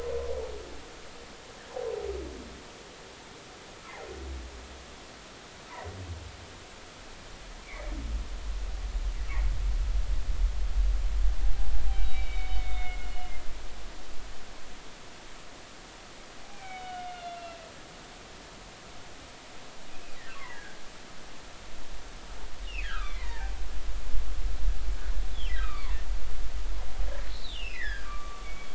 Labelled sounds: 7.6	7.9	humpback whale, 1.9 to 2.4 kHz
11.4	13.1	humpback whale, 0.80 to 3.9 kHz
16.4	17.7	humpback whale, 0.80 to 3.6 kHz
20.3	20.8	humpback whale, 0.90 to 2.2 kHz
22.8	23.6	humpback whale, 0.80 to 2.6 kHz
25.6	26.0	humpback whale, 0.93 to 2.6 kHz
27.2	28.7	humpback whale, 1.1 to 5.3 kHz

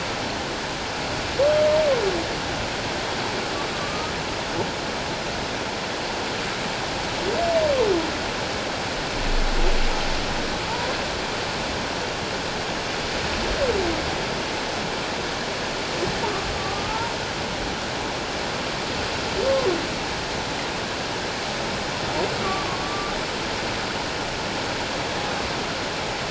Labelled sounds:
1.4	1.7	humpback whale, 1.1 to 1.2 kHz
3.7	4.1	humpback whale, 1.1 to 1.3 kHz
16.6	17.1	humpback whale, 1.1 to 1.4 kHz
22.4	23.2	humpback whale, 0.97 to 1.2 kHz

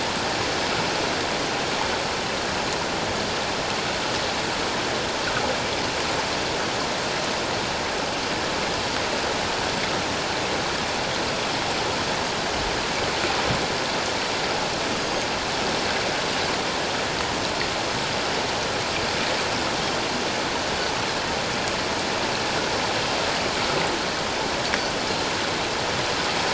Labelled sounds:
15.0	15.3	Pacific white-sided dolphin, 6.3 to 6.6 kHz

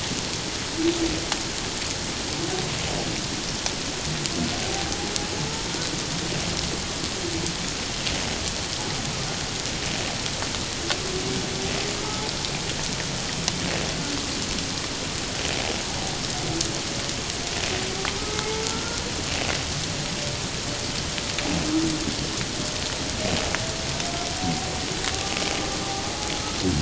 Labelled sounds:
12.0	12.3	humpback whale, 0.81 to 1.3 kHz
18.2	19.0	humpback whale, 0.84 to 1.5 kHz
25.1	25.4	humpback whale, 1.1 to 1.2 kHz

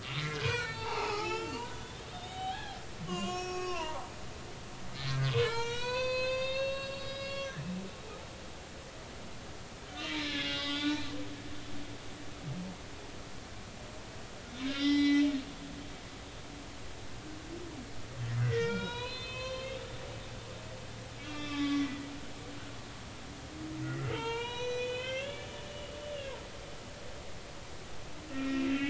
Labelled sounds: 0.2	4.1	humpback whale, 0.80 to 7.4 kHz
5.1	7.5	humpback whale, 0.86 to 7.7 kHz
10.0	11.1	humpback whale, 0.80 to 4.2 kHz
14.7	15.3	humpback whale, 1.9 to 5.8 kHz
18.4	19.8	humpback whale, 0.90 to 5.8 kHz
21.2	22.1	humpback whale, 1.1 to 5.3 kHz
23.8	25.9	humpback whale, 0.86 to 6.5 kHz
28.3	28.7	humpback whale, 1.3 to 2.5 kHz

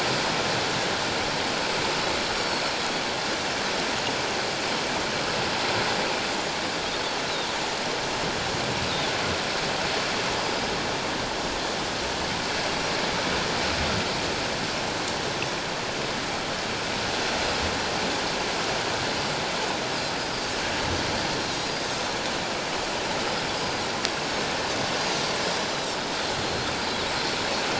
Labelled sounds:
2.4	2.6	Pacific white-sided dolphin, 4.3 to 4.7 kHz
10.4	10.6	Pacific white-sided dolphin, 4.8 to 5.0 kHz
20.2	20.5	Pacific white-sided dolphin, 4.5 to 5.0 kHz
23.6	23.8	Pacific white-sided dolphin, 4.7 to 5.1 kHz
26.4	26.7	Pacific white-sided dolphin, 4.1 to 4.3 kHz

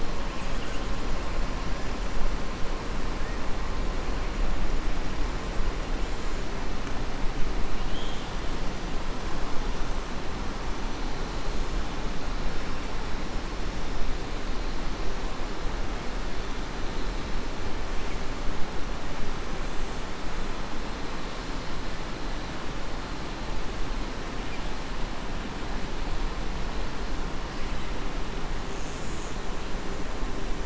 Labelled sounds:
7.8	8.3	killer whale, southern resident, 2.8 to 4.0 kHz

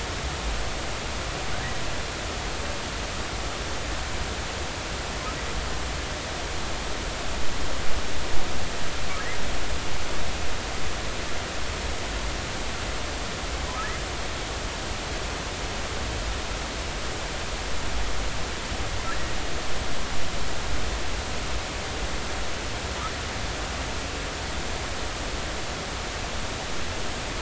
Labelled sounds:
19.1	19.3	humpback whale, 1.6 to 2.0 kHz

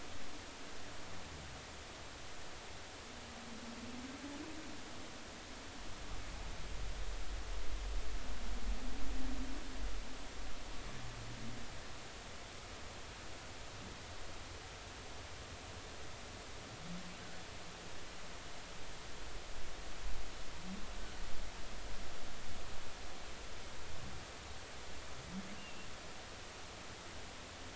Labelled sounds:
25.6	25.9	humpback whale, 2.6 to 2.9 kHz

